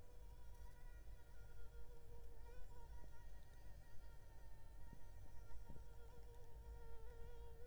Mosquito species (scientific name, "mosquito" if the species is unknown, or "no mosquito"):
Anopheles arabiensis